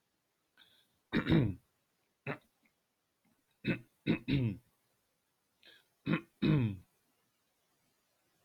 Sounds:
Throat clearing